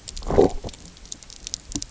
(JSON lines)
{"label": "biophony, low growl", "recorder": "SoundTrap 300"}